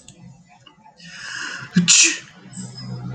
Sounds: Sneeze